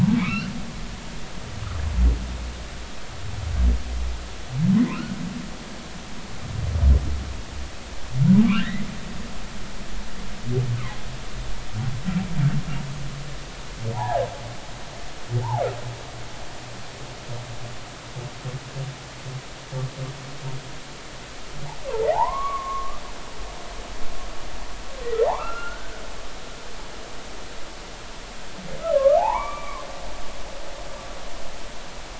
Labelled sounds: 0.2	0.5	humpback whale, 0.99 to 3.1 kHz
4.9	5.2	humpback whale, 1.2 to 1.5 kHz
8.4	8.9	humpback whale, 0.99 to 2.1 kHz
13.9	14.3	humpback whale, 0.80 to 1.9 kHz
22.1	23.0	humpback whale, 0.80 to 2.3 kHz
25.2	26.0	humpback whale, 0.80 to 1.7 kHz
29.0	29.8	humpback whale, 0.80 to 2.4 kHz

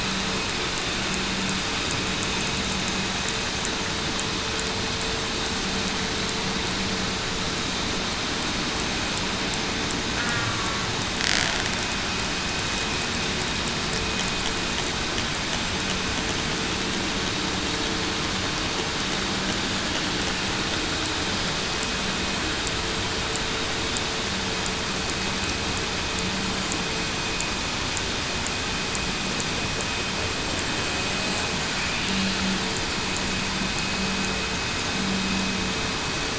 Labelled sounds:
10.2	10.5	killer whale, southern resident, 1.4 to 1.7 kHz

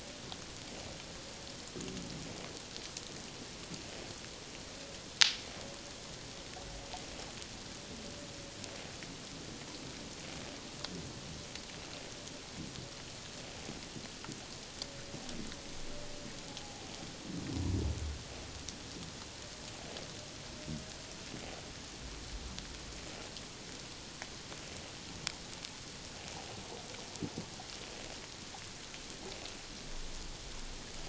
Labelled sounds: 16.5	16.9	humpback whale, 0.78 to 0.88 kHz

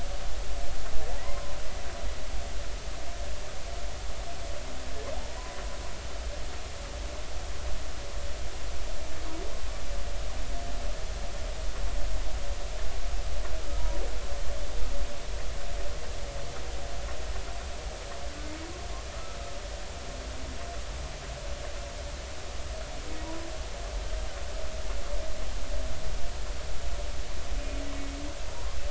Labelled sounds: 1.2	1.6	humpback whale, 0.93 to 1.1 kHz
23.2	23.5	humpback whale, 0.90 to 1.0 kHz

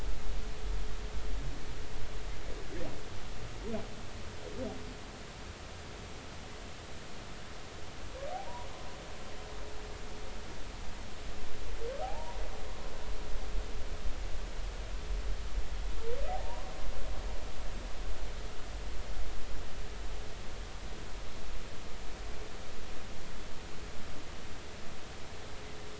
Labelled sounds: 12.0	12.4	humpback whale, 0.80 to 1.0 kHz
16.3	16.7	humpback whale, 0.80 to 1.1 kHz

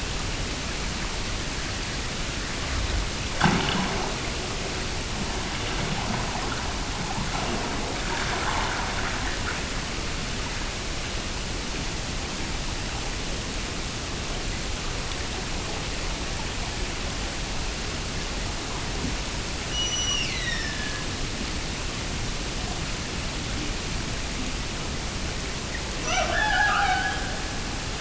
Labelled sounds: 19.6	21.4	killer whale, Bigg's (transient), Gulf of Alaska transient, 1.6 to 8.0 kHz
25.9	27.8	killer whale, Bigg's (transient), Gulf of Alaska transient, 0.34 to 6.0 kHz

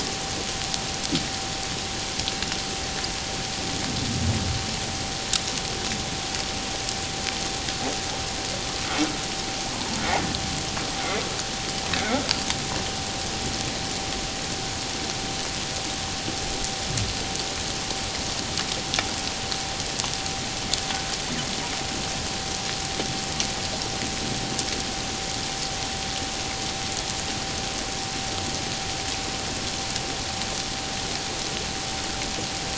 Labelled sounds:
9.7	10.0	humpback whale, 0.84 to 1.1 kHz

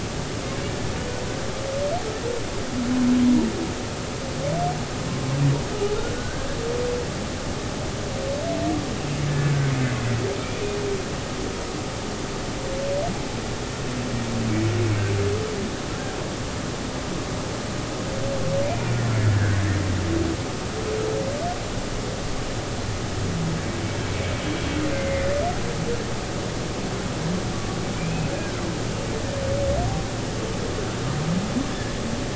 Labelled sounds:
6.1	6.5	humpback whale, 1.4 to 1.7 kHz
9.3	9.5	humpback whale, 1.7 to 1.8 kHz
19.3	19.6	humpback whale, 1.5 to 1.8 kHz
24.9	25.2	humpback whale, 1.9 to 2.2 kHz
28.0	28.3	humpback whale, 2.3 to 2.6 kHz

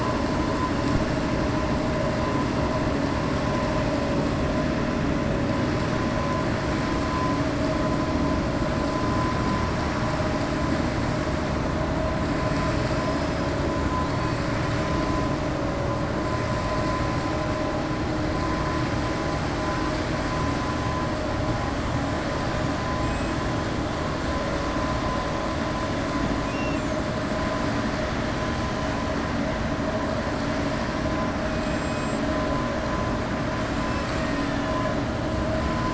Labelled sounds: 12.7	13.4	killer whale, 3.9 to 6.0 kHz

